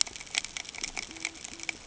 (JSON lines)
{"label": "ambient", "recorder": "HydroMoth"}